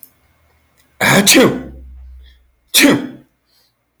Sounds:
Sneeze